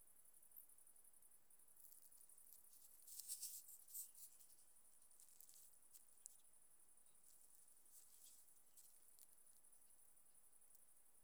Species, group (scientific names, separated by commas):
Tessellana tessellata, Orthoptera